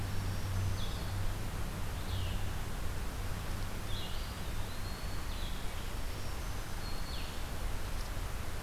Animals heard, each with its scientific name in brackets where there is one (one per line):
Eastern Wood-Pewee (Contopus virens)
Black-throated Green Warbler (Setophaga virens)
Blue-headed Vireo (Vireo solitarius)